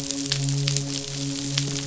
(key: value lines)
label: biophony, midshipman
recorder: SoundTrap 500